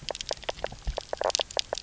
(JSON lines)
{"label": "biophony, knock croak", "recorder": "SoundTrap 300"}